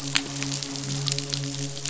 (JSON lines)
{"label": "biophony, midshipman", "recorder": "SoundTrap 500"}